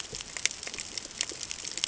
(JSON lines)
{"label": "ambient", "recorder": "HydroMoth"}